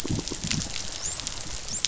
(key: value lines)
label: biophony, dolphin
recorder: SoundTrap 500